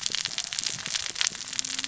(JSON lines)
{"label": "biophony, cascading saw", "recorder": "SoundTrap 600 or HydroMoth"}